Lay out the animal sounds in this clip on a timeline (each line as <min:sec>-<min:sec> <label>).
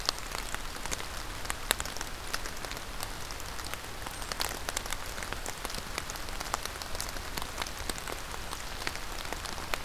0:04.0-0:04.4 Black-capped Chickadee (Poecile atricapillus)